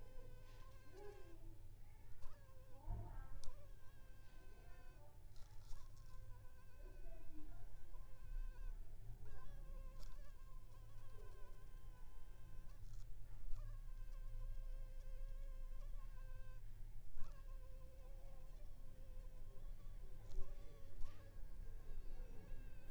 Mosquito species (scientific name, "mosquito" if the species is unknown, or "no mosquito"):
Anopheles funestus s.s.